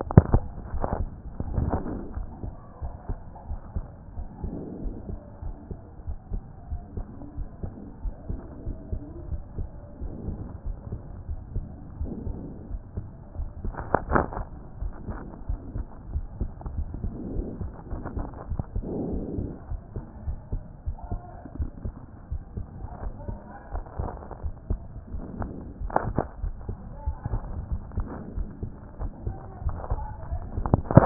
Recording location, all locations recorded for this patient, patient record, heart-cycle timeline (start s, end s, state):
aortic valve (AV)
aortic valve (AV)+pulmonary valve (PV)+tricuspid valve (TV)+mitral valve (MV)
#Age: Child
#Sex: Male
#Height: 115.0 cm
#Weight: 19.8 kg
#Pregnancy status: False
#Murmur: Absent
#Murmur locations: nan
#Most audible location: nan
#Systolic murmur timing: nan
#Systolic murmur shape: nan
#Systolic murmur grading: nan
#Systolic murmur pitch: nan
#Systolic murmur quality: nan
#Diastolic murmur timing: nan
#Diastolic murmur shape: nan
#Diastolic murmur grading: nan
#Diastolic murmur pitch: nan
#Diastolic murmur quality: nan
#Outcome: Abnormal
#Campaign: 2014 screening campaign
0.00	2.16	unannotated
2.16	2.26	S1
2.26	2.44	systole
2.44	2.54	S2
2.54	2.82	diastole
2.82	2.92	S1
2.92	3.08	systole
3.08	3.18	S2
3.18	3.48	diastole
3.48	3.60	S1
3.60	3.74	systole
3.74	3.86	S2
3.86	4.16	diastole
4.16	4.28	S1
4.28	4.42	systole
4.42	4.54	S2
4.54	4.82	diastole
4.82	4.94	S1
4.94	5.08	systole
5.08	5.18	S2
5.18	5.44	diastole
5.44	5.54	S1
5.54	5.70	systole
5.70	5.78	S2
5.78	6.06	diastole
6.06	6.18	S1
6.18	6.32	systole
6.32	6.42	S2
6.42	6.70	diastole
6.70	6.82	S1
6.82	6.96	systole
6.96	7.06	S2
7.06	7.36	diastole
7.36	7.48	S1
7.48	7.62	systole
7.62	7.72	S2
7.72	8.04	diastole
8.04	8.14	S1
8.14	8.28	systole
8.28	8.40	S2
8.40	8.66	diastole
8.66	8.76	S1
8.76	8.92	systole
8.92	9.00	S2
9.00	9.30	diastole
9.30	9.42	S1
9.42	9.58	systole
9.58	9.68	S2
9.68	10.04	diastole
10.04	10.12	S1
10.12	10.26	systole
10.26	10.36	S2
10.36	10.66	diastole
10.66	10.76	S1
10.76	10.90	systole
10.90	11.00	S2
11.00	11.28	diastole
11.28	11.40	S1
11.40	11.54	systole
11.54	11.66	S2
11.66	12.00	diastole
12.00	12.12	S1
12.12	12.26	systole
12.26	12.36	S2
12.36	12.70	diastole
12.70	12.82	S1
12.82	12.96	systole
12.96	13.04	S2
13.04	13.38	diastole
13.38	13.50	S1
13.50	13.64	systole
13.64	13.74	S2
13.74	14.13	diastole
14.13	14.26	S1
14.26	14.38	systole
14.38	14.46	S2
14.46	14.80	diastole
14.80	14.92	S1
14.92	15.08	systole
15.08	15.18	S2
15.18	15.48	diastole
15.48	15.60	S1
15.60	15.76	systole
15.76	15.86	S2
15.86	16.12	diastole
16.12	16.26	S1
16.26	16.40	systole
16.40	16.50	S2
16.50	16.76	diastole
16.76	16.88	S1
16.88	17.02	systole
17.02	17.12	S2
17.12	17.34	diastole
17.34	17.46	S1
17.46	17.60	systole
17.60	17.72	S2
17.72	17.92	diastole
17.92	18.02	S1
18.02	18.16	systole
18.16	18.26	S2
18.26	18.50	diastole
18.50	18.62	S1
18.62	18.74	systole
18.74	18.86	S2
18.86	19.11	diastole
19.11	19.22	S1
19.22	19.36	systole
19.36	19.50	S2
19.50	19.70	diastole
19.70	19.80	S1
19.80	19.94	systole
19.94	20.04	S2
20.04	20.26	diastole
20.26	20.38	S1
20.38	20.52	systole
20.52	20.62	S2
20.62	20.86	diastole
20.86	20.96	S1
20.96	21.10	systole
21.10	21.20	S2
21.20	21.58	diastole
21.58	21.70	S1
21.70	21.84	systole
21.84	21.94	S2
21.94	22.32	diastole
22.32	22.42	S1
22.42	22.56	systole
22.56	22.66	S2
22.66	23.02	diastole
23.02	23.14	S1
23.14	23.28	systole
23.28	23.38	S2
23.38	23.72	diastole
23.72	23.84	S1
23.84	23.98	systole
23.98	24.10	S2
24.10	24.44	diastole
24.44	24.54	S1
24.54	24.68	systole
24.68	24.80	S2
24.80	25.12	diastole
25.12	25.24	S1
25.24	25.38	systole
25.38	25.50	S2
25.50	25.80	diastole
25.80	25.92	S1
25.92	26.06	systole
26.06	26.18	S2
26.18	26.42	diastole
26.42	26.54	S1
26.54	26.68	systole
26.68	26.76	S2
26.76	27.06	diastole
27.06	27.16	S1
27.16	27.32	systole
27.32	27.40	S2
27.40	27.70	diastole
27.70	27.82	S1
27.82	27.96	systole
27.96	28.07	S2
28.07	28.36	diastole
28.36	28.48	S1
28.48	28.62	systole
28.62	28.72	S2
28.72	29.00	diastole
29.00	29.12	S1
29.12	29.26	systole
29.26	29.36	S2
29.36	29.64	diastole
29.64	31.06	unannotated